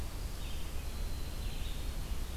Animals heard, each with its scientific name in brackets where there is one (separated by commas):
Winter Wren (Troglodytes hiemalis), Red-eyed Vireo (Vireo olivaceus)